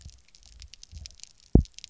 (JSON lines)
{"label": "biophony, double pulse", "recorder": "SoundTrap 300"}